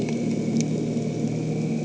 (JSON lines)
{"label": "anthrophony, boat engine", "recorder": "HydroMoth"}